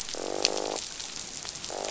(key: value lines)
label: biophony, croak
recorder: SoundTrap 500